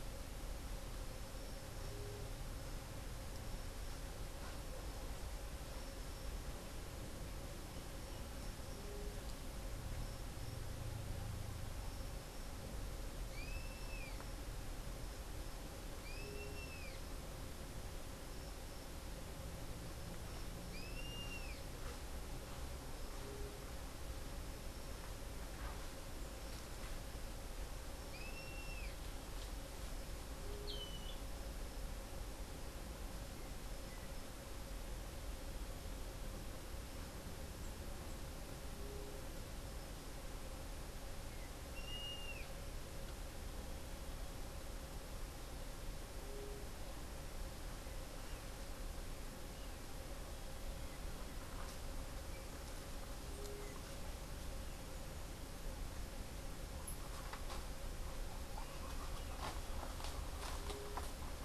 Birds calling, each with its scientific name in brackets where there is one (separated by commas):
White-tipped Dove (Leptotila verreauxi), Rusty-margined Flycatcher (Myiozetetes cayanensis)